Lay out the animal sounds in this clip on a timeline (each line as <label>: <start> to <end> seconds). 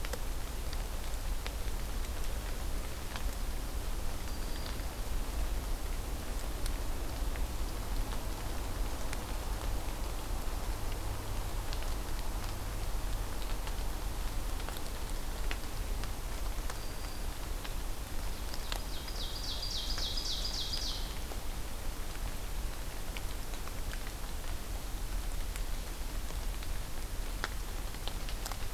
Black-throated Green Warbler (Setophaga virens): 4.1 to 4.9 seconds
Black-throated Green Warbler (Setophaga virens): 16.7 to 17.2 seconds
Ovenbird (Seiurus aurocapilla): 18.2 to 21.2 seconds